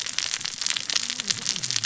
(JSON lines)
{"label": "biophony, cascading saw", "recorder": "SoundTrap 600 or HydroMoth"}